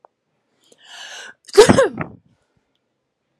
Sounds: Sneeze